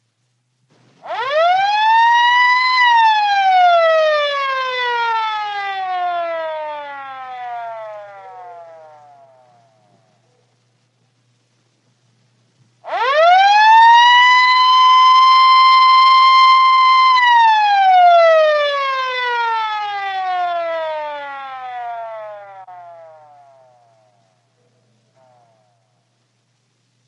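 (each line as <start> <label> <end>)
1.0 A mechanical police siren goes off. 9.7
12.8 Mechanical police siren sounding. 24.4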